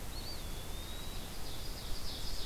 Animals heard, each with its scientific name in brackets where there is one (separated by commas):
Eastern Wood-Pewee (Contopus virens), Dark-eyed Junco (Junco hyemalis), Ovenbird (Seiurus aurocapilla)